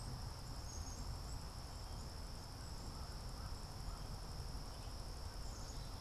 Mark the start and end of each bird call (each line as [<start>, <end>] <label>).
[0.00, 6.00] Black-capped Chickadee (Poecile atricapillus)
[1.93, 6.00] American Crow (Corvus brachyrhynchos)